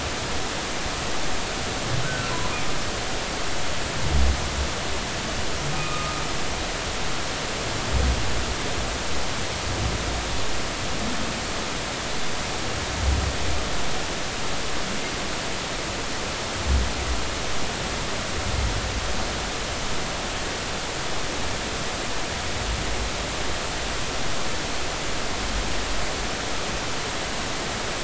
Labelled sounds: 2.0	2.3	humpback whale, 1.3 to 1.6 kHz
5.7	6.1	humpback whale, 1.2 to 2.6 kHz

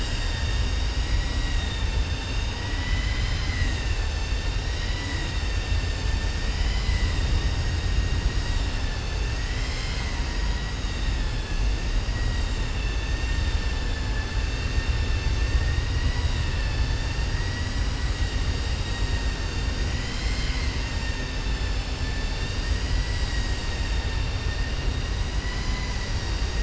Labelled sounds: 2.6	5.3	vessel noise, 0.97 to 7.4 kHz
6.5	7.2	vessel noise, 1.0 to 5.0 kHz
13.1	15.3	vessel noise, 0.85 to 4.6 kHz
20.9	22.6	vessel noise, 1.7 to 5.4 kHz

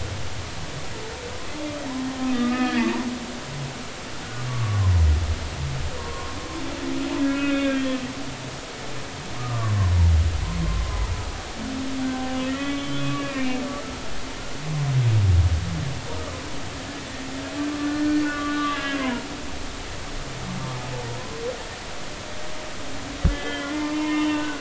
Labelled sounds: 2.3	3.0	humpback whale, 1.2 to 2.6 kHz
4.5	4.8	humpback whale, 1.1 to 1.2 kHz
6.0	6.4	humpback whale, 0.90 to 1.2 kHz
7.3	8.0	humpback whale, 1.3 to 3.7 kHz
9.4	9.7	humpback whale, 0.99 to 1.3 kHz
12.5	13.6	humpback whale, 1.1 to 3.1 kHz
17.8	19.3	humpback whale, 0.90 to 2.8 kHz
23.3	24.5	humpback whale, 0.86 to 3.2 kHz

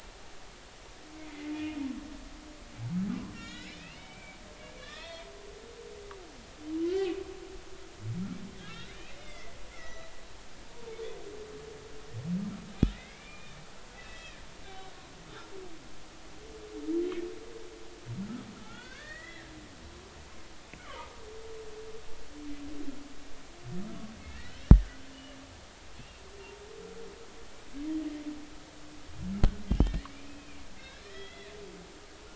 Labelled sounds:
1.3	1.8	humpback whale, 2.0 to 2.6 kHz
3.3	4.4	humpback whale, 1.3 to 5.4 kHz
4.8	5.3	humpback whale, 1.0 to 4.4 kHz
6.0	6.3	humpback whale, 0.93 to 1.1 kHz
8.6	10.1	humpback whale, 1.2 to 4.0 kHz
12.9	14.4	humpback whale, 1.8 to 2.7 kHz
14.7	15.0	humpback whale, 3.7 to 3.9 kHz
18.5	19.5	humpback whale, 0.80 to 4.7 kHz
20.8	21.1	humpback whale, 1.0 to 1.5 kHz
24.3	24.6	humpback whale, 1.7 to 2.0 kHz
26.0	26.2	humpback whale, 2.5 to 2.8 kHz
29.8	31.5	humpback whale, 1.7 to 4.1 kHz

